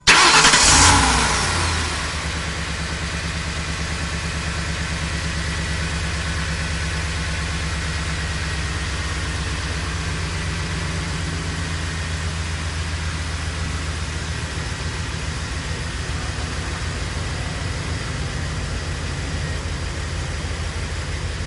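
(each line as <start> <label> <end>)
0.0 A truck engine starts. 2.5
2.5 A truck engine is humming. 21.5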